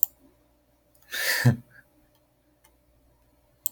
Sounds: Laughter